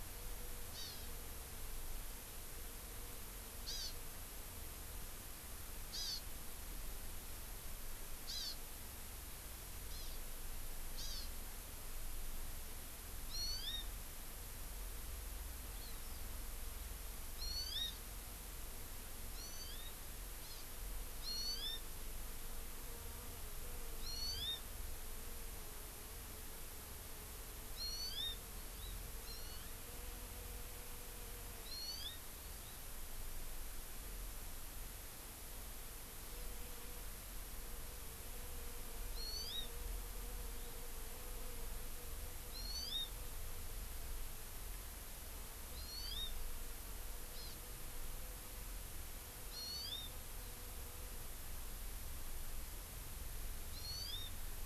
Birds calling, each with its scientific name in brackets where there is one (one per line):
Hawaii Amakihi (Chlorodrepanis virens)